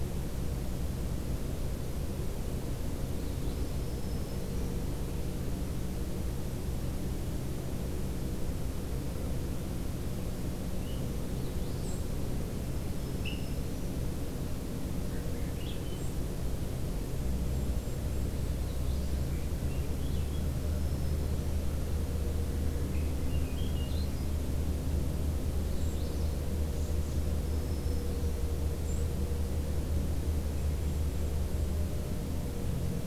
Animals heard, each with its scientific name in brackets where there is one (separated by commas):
Golden-crowned Kinglet (Regulus satrapa), Swainson's Thrush (Catharus ustulatus), Black-throated Green Warbler (Setophaga virens), Magnolia Warbler (Setophaga magnolia), White-throated Sparrow (Zonotrichia albicollis)